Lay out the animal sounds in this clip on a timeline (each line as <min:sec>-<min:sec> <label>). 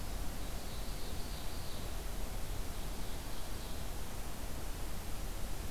0:00.4-0:01.9 Ovenbird (Seiurus aurocapilla)
0:02.3-0:03.9 Ovenbird (Seiurus aurocapilla)